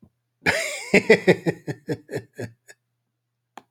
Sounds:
Laughter